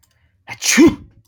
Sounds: Sneeze